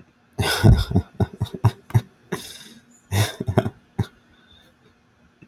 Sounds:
Laughter